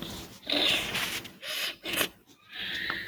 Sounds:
Sniff